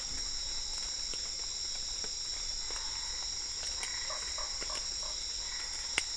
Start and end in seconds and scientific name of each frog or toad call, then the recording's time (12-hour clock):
2.6	6.1	Boana albopunctata
4.0	5.2	Boana lundii
7:00pm